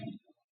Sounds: Throat clearing